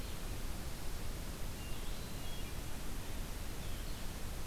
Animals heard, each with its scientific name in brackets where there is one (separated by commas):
Hermit Thrush (Catharus guttatus), Blue-headed Vireo (Vireo solitarius)